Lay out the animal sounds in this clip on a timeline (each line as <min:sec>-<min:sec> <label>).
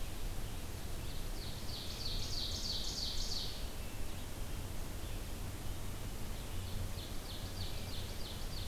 0:00.0-0:08.7 Red-eyed Vireo (Vireo olivaceus)
0:01.0-0:03.8 Ovenbird (Seiurus aurocapilla)
0:06.1-0:08.7 Ovenbird (Seiurus aurocapilla)
0:07.3-0:08.0 Wood Thrush (Hylocichla mustelina)